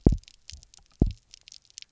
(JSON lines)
{"label": "biophony, double pulse", "recorder": "SoundTrap 300"}